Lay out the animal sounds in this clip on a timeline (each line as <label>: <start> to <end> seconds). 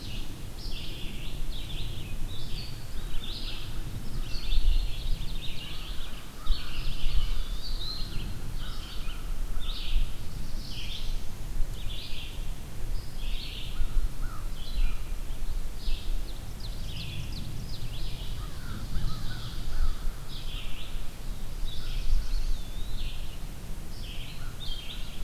Black-throated Blue Warbler (Setophaga caerulescens): 0.0 to 0.8 seconds
Red-eyed Vireo (Vireo olivaceus): 0.0 to 25.2 seconds
American Crow (Corvus brachyrhynchos): 4.1 to 4.7 seconds
Ovenbird (Seiurus aurocapilla): 4.2 to 6.1 seconds
American Crow (Corvus brachyrhynchos): 5.6 to 10.0 seconds
Eastern Wood-Pewee (Contopus virens): 7.2 to 7.8 seconds
Black-throated Blue Warbler (Setophaga caerulescens): 9.5 to 11.3 seconds
American Crow (Corvus brachyrhynchos): 13.6 to 15.1 seconds
Ovenbird (Seiurus aurocapilla): 16.2 to 20.1 seconds
American Crow (Corvus brachyrhynchos): 18.5 to 20.5 seconds
Black-throated Blue Warbler (Setophaga caerulescens): 21.3 to 22.7 seconds
Eastern Wood-Pewee (Contopus virens): 22.5 to 23.3 seconds
American Crow (Corvus brachyrhynchos): 24.2 to 25.2 seconds